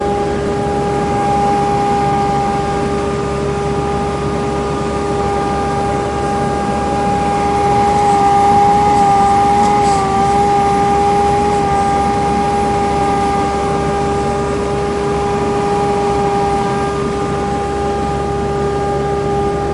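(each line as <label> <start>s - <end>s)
A large vacuum cleaner roars while cleaning the street. 0.0s - 19.7s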